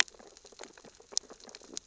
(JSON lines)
{"label": "biophony, sea urchins (Echinidae)", "recorder": "SoundTrap 600 or HydroMoth"}